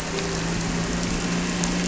{"label": "anthrophony, boat engine", "recorder": "SoundTrap 300"}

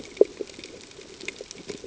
{"label": "ambient", "recorder": "HydroMoth"}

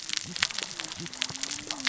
{"label": "biophony, cascading saw", "recorder": "SoundTrap 600 or HydroMoth"}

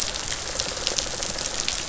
{"label": "biophony, rattle response", "recorder": "SoundTrap 500"}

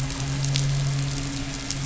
{"label": "anthrophony, boat engine", "recorder": "SoundTrap 500"}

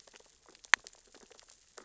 {"label": "biophony, sea urchins (Echinidae)", "recorder": "SoundTrap 600 or HydroMoth"}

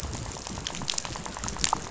{"label": "biophony, rattle", "recorder": "SoundTrap 500"}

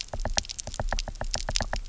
{"label": "biophony, knock", "recorder": "SoundTrap 300"}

